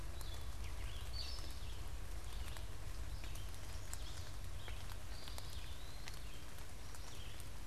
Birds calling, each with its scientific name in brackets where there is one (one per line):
Eastern Wood-Pewee (Contopus virens)
Chestnut-sided Warbler (Setophaga pensylvanica)
Gray Catbird (Dumetella carolinensis)
Red-eyed Vireo (Vireo olivaceus)